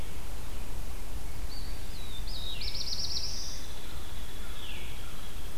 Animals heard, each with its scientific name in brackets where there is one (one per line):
Veery (Catharus fuscescens)
Hairy Woodpecker (Dryobates villosus)
Black-throated Blue Warbler (Setophaga caerulescens)